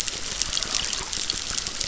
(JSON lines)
{"label": "biophony, crackle", "recorder": "SoundTrap 600"}